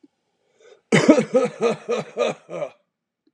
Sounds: Cough